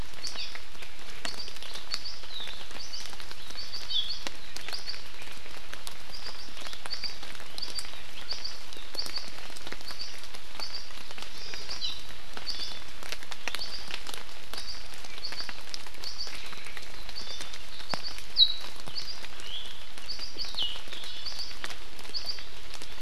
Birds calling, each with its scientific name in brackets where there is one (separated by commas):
Hawaii Amakihi (Chlorodrepanis virens), Iiwi (Drepanis coccinea)